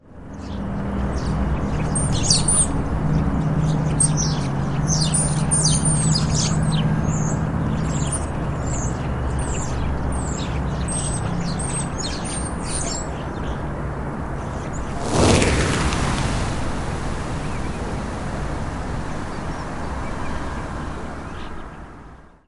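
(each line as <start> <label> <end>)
0.0 A car is driving in the background. 15.0
0.0 Birds chirping. 15.0
15.0 An airplane takes off and gradually fades away. 22.5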